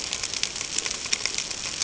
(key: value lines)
label: ambient
recorder: HydroMoth